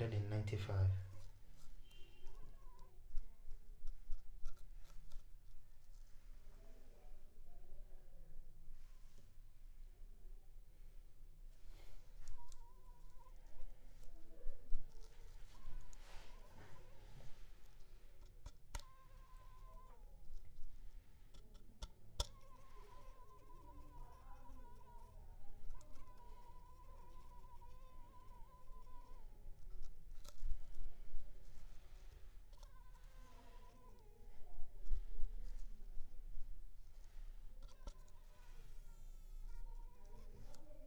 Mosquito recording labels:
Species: Culex pipiens complex; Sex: female; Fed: unfed; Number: one; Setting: cup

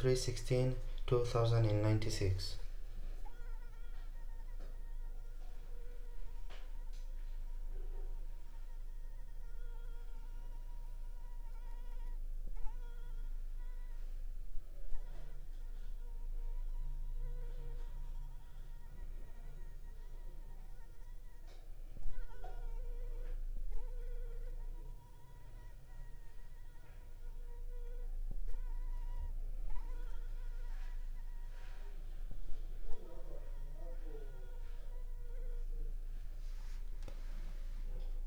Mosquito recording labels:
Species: Anopheles arabiensis; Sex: female; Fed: unfed; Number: one; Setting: cup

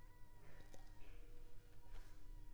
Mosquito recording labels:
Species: Culex pipiens complex; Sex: female; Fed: unfed; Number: one; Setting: cup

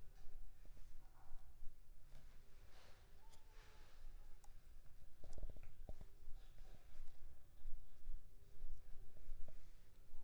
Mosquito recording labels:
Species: Culex pipiens complex; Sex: female; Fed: unfed; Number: one; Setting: cup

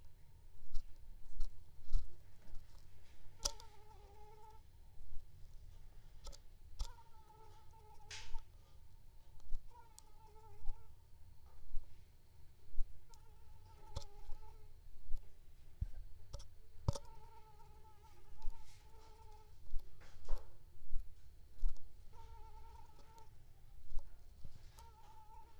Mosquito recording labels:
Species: Anopheles squamosus; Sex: female; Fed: unfed; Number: one; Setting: cup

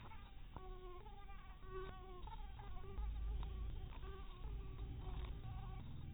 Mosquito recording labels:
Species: mosquito; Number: one; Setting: cup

